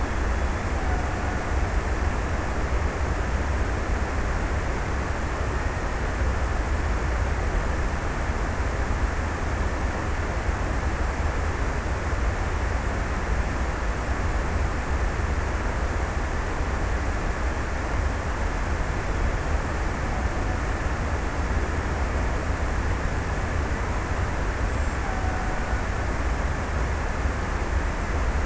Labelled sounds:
24.9	26.7	killer whale, Bigg's (transient), 0.52 to 1.7 kHz

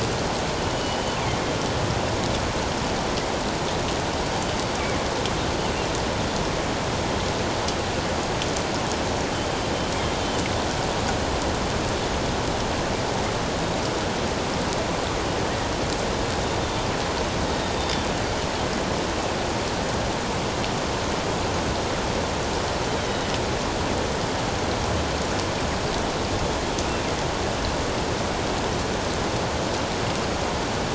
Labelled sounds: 0.6	1.2	killer whale, northern resident, G clan, GG subclan, 2.9 to 3.1 kHz
17.5	18.1	killer whale, northern resident, G clan, GG subclan, 3.5 to 3.8 kHz

